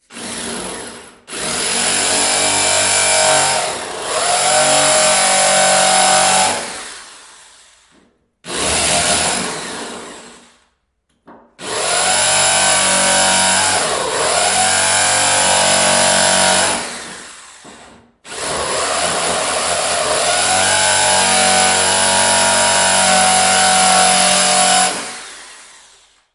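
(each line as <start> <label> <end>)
0.0 A drill is operating. 1.2
1.3 Heavy drilling with a short pause. 7.6
8.4 Heavy drilling. 10.6
11.3 Heavy drilling with a short pause. 26.3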